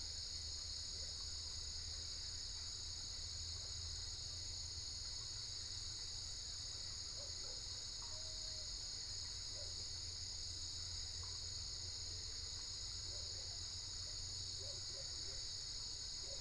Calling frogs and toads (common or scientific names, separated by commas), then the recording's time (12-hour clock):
none
3:15am